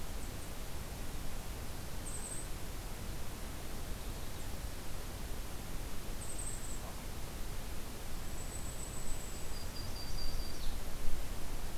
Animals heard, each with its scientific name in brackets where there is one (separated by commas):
Blackpoll Warbler (Setophaga striata), Golden-crowned Kinglet (Regulus satrapa)